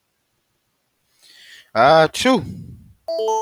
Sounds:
Sneeze